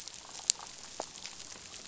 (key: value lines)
label: biophony
recorder: SoundTrap 500